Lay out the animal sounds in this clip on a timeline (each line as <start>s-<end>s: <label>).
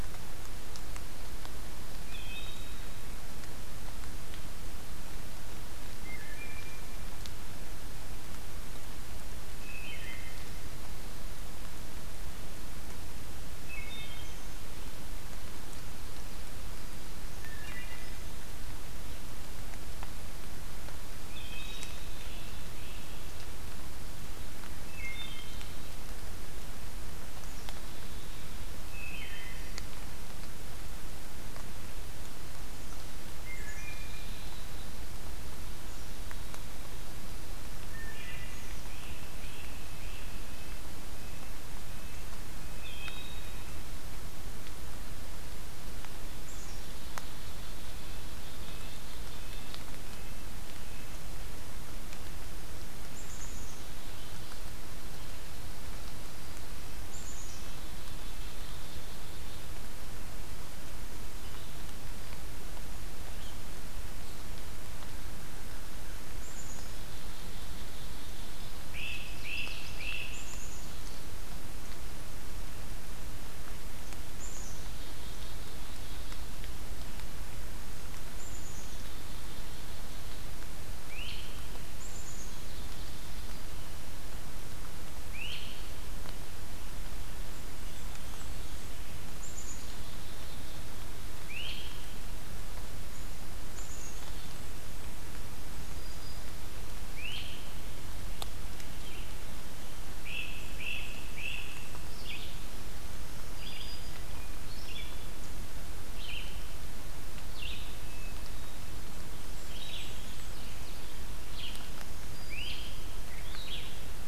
1.8s-3.1s: Wood Thrush (Hylocichla mustelina)
5.8s-7.1s: Wood Thrush (Hylocichla mustelina)
9.4s-10.5s: Wood Thrush (Hylocichla mustelina)
13.6s-14.7s: Wood Thrush (Hylocichla mustelina)
17.4s-18.4s: Wood Thrush (Hylocichla mustelina)
21.0s-22.2s: Wood Thrush (Hylocichla mustelina)
22.1s-23.2s: Great Crested Flycatcher (Myiarchus crinitus)
24.6s-26.0s: Wood Thrush (Hylocichla mustelina)
28.8s-29.9s: Wood Thrush (Hylocichla mustelina)
33.3s-34.5s: Wood Thrush (Hylocichla mustelina)
33.3s-34.8s: Black-capped Chickadee (Poecile atricapillus)
35.8s-37.1s: Black-capped Chickadee (Poecile atricapillus)
37.8s-38.8s: Wood Thrush (Hylocichla mustelina)
38.0s-40.4s: Great Crested Flycatcher (Myiarchus crinitus)
40.3s-42.8s: Red-breasted Nuthatch (Sitta canadensis)
42.7s-43.9s: Wood Thrush (Hylocichla mustelina)
46.2s-49.9s: Black-capped Chickadee (Poecile atricapillus)
48.0s-51.1s: Red-breasted Nuthatch (Sitta canadensis)
52.9s-54.7s: Black-capped Chickadee (Poecile atricapillus)
57.0s-59.8s: Black-capped Chickadee (Poecile atricapillus)
65.0s-66.7s: American Crow (Corvus brachyrhynchos)
66.2s-68.9s: Black-capped Chickadee (Poecile atricapillus)
68.7s-70.8s: Great Crested Flycatcher (Myiarchus crinitus)
68.8s-70.4s: Ovenbird (Seiurus aurocapilla)
70.1s-71.4s: Black-capped Chickadee (Poecile atricapillus)
74.2s-76.7s: Black-capped Chickadee (Poecile atricapillus)
78.2s-80.6s: Black-capped Chickadee (Poecile atricapillus)
80.9s-81.6s: Great Crested Flycatcher (Myiarchus crinitus)
81.9s-83.8s: Black-capped Chickadee (Poecile atricapillus)
85.1s-85.9s: Great Crested Flycatcher (Myiarchus crinitus)
87.3s-89.1s: Blackburnian Warbler (Setophaga fusca)
89.1s-90.9s: Black-capped Chickadee (Poecile atricapillus)
91.3s-92.2s: Great Crested Flycatcher (Myiarchus crinitus)
93.5s-94.9s: Black-capped Chickadee (Poecile atricapillus)
95.4s-96.7s: Black-throated Green Warbler (Setophaga virens)
96.9s-97.8s: Great Crested Flycatcher (Myiarchus crinitus)
100.0s-102.0s: Great Crested Flycatcher (Myiarchus crinitus)
100.2s-102.1s: Blackburnian Warbler (Setophaga fusca)
102.0s-114.3s: Red-eyed Vireo (Vireo olivaceus)
102.8s-104.4s: Black-throated Green Warbler (Setophaga virens)
107.9s-109.1s: Hermit Thrush (Catharus guttatus)
108.9s-110.7s: Blackburnian Warbler (Setophaga fusca)
111.8s-113.4s: Black-throated Green Warbler (Setophaga virens)
112.2s-113.3s: Great Crested Flycatcher (Myiarchus crinitus)